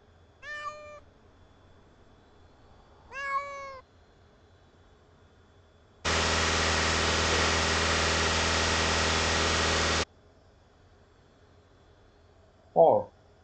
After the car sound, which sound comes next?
speech